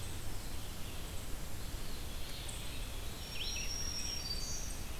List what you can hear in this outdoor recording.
Eastern Wood-Pewee, Black-throated Green Warbler, Red-eyed Vireo